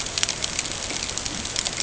{"label": "ambient", "recorder": "HydroMoth"}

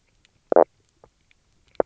{"label": "biophony, knock croak", "recorder": "SoundTrap 300"}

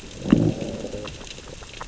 {"label": "biophony, growl", "recorder": "SoundTrap 600 or HydroMoth"}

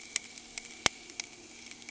{"label": "anthrophony, boat engine", "recorder": "HydroMoth"}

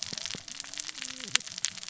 {"label": "biophony, cascading saw", "recorder": "SoundTrap 600 or HydroMoth"}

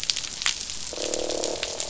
{"label": "biophony, croak", "recorder": "SoundTrap 500"}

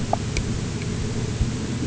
{"label": "anthrophony, boat engine", "recorder": "HydroMoth"}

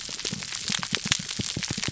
{"label": "biophony, pulse", "recorder": "SoundTrap 300"}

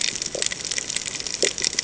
{"label": "ambient", "recorder": "HydroMoth"}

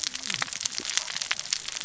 {"label": "biophony, cascading saw", "recorder": "SoundTrap 600 or HydroMoth"}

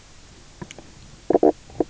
{"label": "biophony, knock croak", "recorder": "SoundTrap 300"}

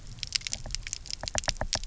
{"label": "biophony, knock", "recorder": "SoundTrap 300"}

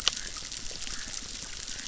{"label": "biophony, chorus", "recorder": "SoundTrap 600"}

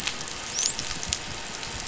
{"label": "biophony, dolphin", "recorder": "SoundTrap 500"}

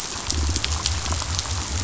{"label": "biophony", "recorder": "SoundTrap 500"}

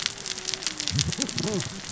{"label": "biophony, cascading saw", "recorder": "SoundTrap 600 or HydroMoth"}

